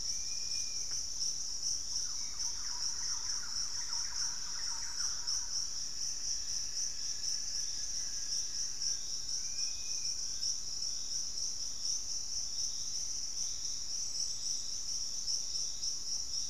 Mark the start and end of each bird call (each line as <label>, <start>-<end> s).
Black-faced Antthrush (Formicarius analis), 0.0-1.0 s
Dusky-capped Flycatcher (Myiarchus tuberculifer), 0.0-1.1 s
Thrush-like Wren (Campylorhynchus turdinus), 0.0-5.9 s
unidentified bird, 2.1-2.7 s
Buff-throated Woodcreeper (Xiphorhynchus guttatus), 5.7-9.2 s
Fasciated Antshrike (Cymbilaimus lineatus), 8.1-11.8 s
Dusky-capped Flycatcher (Myiarchus tuberculifer), 9.4-10.3 s